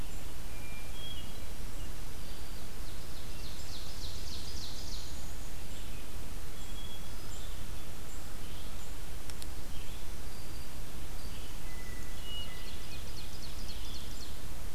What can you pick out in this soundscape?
Hermit Thrush, Ovenbird